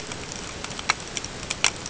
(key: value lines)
label: ambient
recorder: HydroMoth